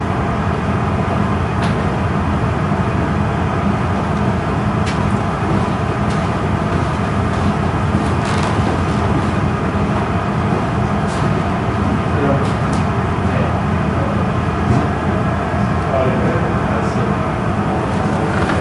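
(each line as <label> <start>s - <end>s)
Strong noise. 0.0s - 18.6s
Keystrokes on a typewriter. 1.6s - 2.0s
Keystrokes on a typewriter. 5.0s - 5.3s
Keystrokes on a typewriter. 6.0s - 6.2s
Footsteps on a creaking wooden floor. 8.2s - 9.5s
Keystrokes on a typewriter. 11.2s - 11.5s
Two keystrokes on a typewriter. 12.6s - 12.9s
Striking sound muffled. 14.6s - 14.9s
One man is speaking. 16.0s - 18.6s
The sound of wrapping paper being handled. 18.0s - 18.6s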